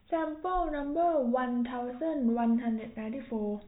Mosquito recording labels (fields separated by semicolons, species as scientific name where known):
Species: no mosquito; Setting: cup